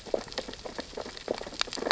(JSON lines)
{"label": "biophony, sea urchins (Echinidae)", "recorder": "SoundTrap 600 or HydroMoth"}